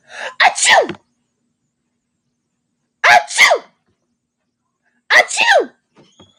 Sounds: Sneeze